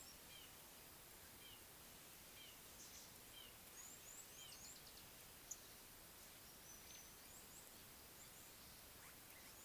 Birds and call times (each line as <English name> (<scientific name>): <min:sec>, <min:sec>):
Red-fronted Barbet (Tricholaema diademata): 0:01.4